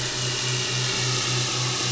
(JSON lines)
{"label": "anthrophony, boat engine", "recorder": "SoundTrap 500"}